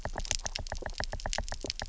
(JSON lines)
{"label": "biophony, knock", "recorder": "SoundTrap 300"}